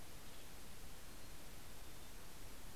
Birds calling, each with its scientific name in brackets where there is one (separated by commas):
Mountain Chickadee (Poecile gambeli)